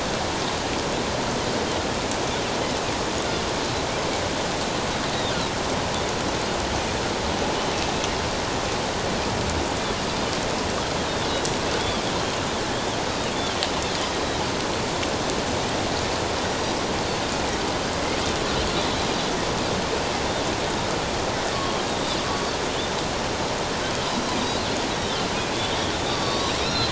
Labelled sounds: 11.8	12.0	Pacific white-sided dolphin, 3.1 to 3.5 kHz
21.5	21.9	Pacific white-sided dolphin, 1.0 to 3.3 kHz
24.9	26.9	Pacific white-sided dolphin, 0.94 to 4.7 kHz

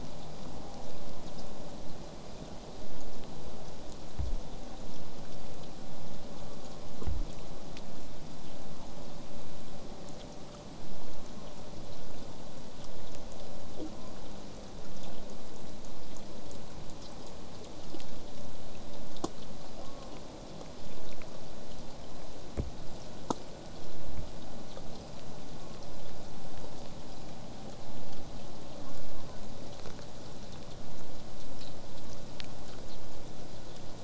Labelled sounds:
6.3	7.0	killer whale, southern resident, J pod, 0.31 to 1.5 kHz
11.1	11.7	killer whale, southern resident, J pod, 0.31 to 1.2 kHz
19.8	20.2	killer whale, southern resident, J pod, call S04, 0.31 to 1.3 kHz
28.8	29.4	killer whale, southern resident, J pod, call S04, 0.81 to 1.6 kHz

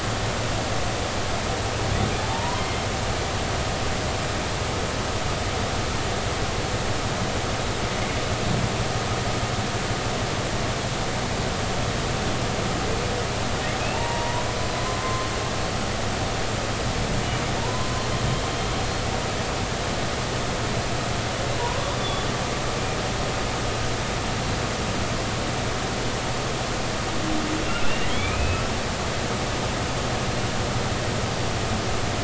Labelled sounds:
2.3	2.8	humpback whale, 0.80 to 2.1 kHz
13.9	15.3	humpback whale, 0.86 to 1.1 kHz
17.6	18.1	humpback whale, 0.86 to 1.1 kHz
21.5	22.3	humpback whale, 0.90 to 3.6 kHz
27.8	28.6	humpback whale, 2.1 to 3.6 kHz

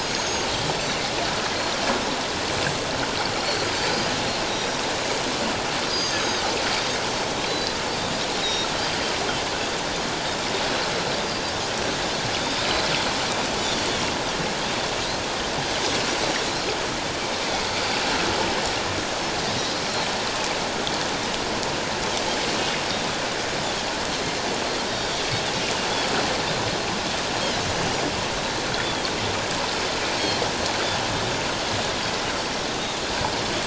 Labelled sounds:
0.0	1.1	Pacific white-sided dolphin, 6.2 to 7.5 kHz
3.9	4.1	Pacific white-sided dolphin, 4.8 to 4.9 kHz
4.5	4.8	Pacific white-sided dolphin, 5.7 to 5.8 kHz
5.9	6.4	Pacific white-sided dolphin, 3.6 to 6.6 kHz
7.4	8.7	Pacific white-sided dolphin, 3.7 to 4.1 kHz
12.4	12.7	Pacific white-sided dolphin, 3.5 to 3.8 kHz
13.6	13.9	Pacific white-sided dolphin, 3.4 to 3.9 kHz
28.7	29.1	Pacific white-sided dolphin, 3.2 to 3.6 kHz

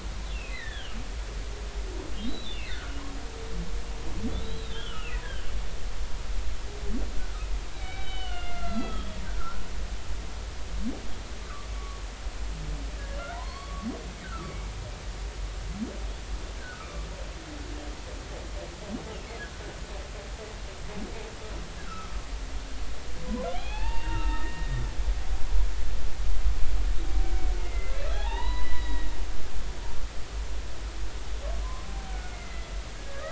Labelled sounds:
0.3	1.0	humpback whale, 1.5 to 4.2 kHz
2.2	3.0	humpback whale, 1.1 to 4.0 kHz
4.4	5.2	humpback whale, 1.2 to 4.1 kHz
7.2	9.6	humpback whale, 1.2 to 4.8 kHz
11.4	12.0	humpback whale, 1.1 to 1.6 kHz
13.3	13.9	humpback whale, 0.86 to 4.5 kHz
14.2	14.7	humpback whale, 1.1 to 2.4 kHz
16.6	17.1	humpback whale, 1.1 to 2.5 kHz
21.8	22.1	humpback whale, 1.2 to 1.5 kHz
23.5	24.9	humpback whale, 0.80 to 4.7 kHz
27.6	29.1	humpback whale, 0.80 to 4.0 kHz
32.1	33.2	humpback whale, 1.4 to 2.2 kHz

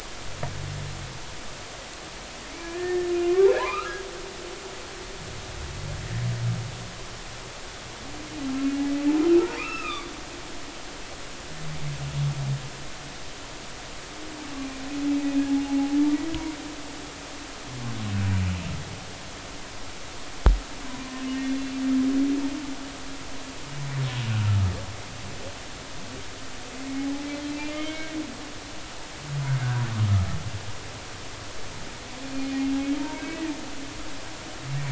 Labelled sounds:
2.5	4.0	humpback whale, 0.80 to 2.8 kHz
9.5	10.1	humpback whale, 1.1 to 3.7 kHz
21.3	21.6	humpback whale, 2.1 to 2.2 kHz
27.7	28.1	humpback whale, 1.5 to 3.2 kHz
32.3	32.5	humpback whale, 4.3 to 4.4 kHz
33.0	33.4	humpback whale, 0.86 to 2.6 kHz

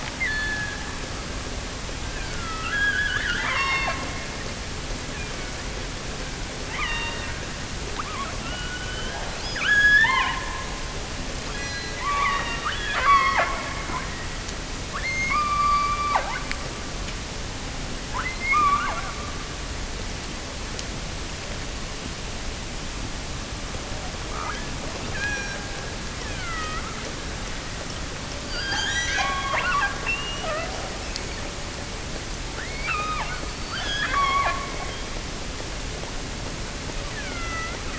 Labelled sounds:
0.0	1.0	killer whale, offshore, 1.5 to 4.6 kHz
2.0	4.2	killer whale, offshore, 0.70 to 6.8 kHz
4.8	5.7	killer whale, offshore, 1.3 to 2.7 kHz
6.6	7.4	killer whale, offshore, 0.64 to 4.9 kHz
7.9	11.0	killer whale, offshore, 0.73 to 7.1 kHz
11.4	14.4	killer whale, offshore, 0.50 to 7.7 kHz
14.9	16.6	killer whale, offshore, 0.41 to 6.7 kHz
18.1	19.3	killer whale, offshore, 0.55 to 4.1 kHz
24.1	25.9	killer whale, offshore, 0.59 to 6.8 kHz
26.2	27.0	killer whale, offshore, 1.0 to 3.7 kHz
28.6	30.8	killer whale, offshore, 0.32 to 8.0 kHz
32.6	34.8	killer whale, offshore, 0.39 to 7.0 kHz
37.1	37.9	killer whale, offshore, 1.0 to 3.7 kHz

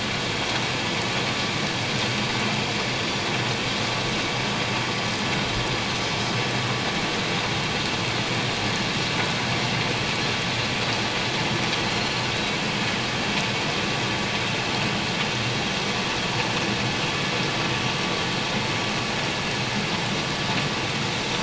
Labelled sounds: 11.9	12.2	Pacific white-sided dolphin, 4.0 to 4.4 kHz

